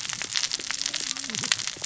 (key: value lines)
label: biophony, cascading saw
recorder: SoundTrap 600 or HydroMoth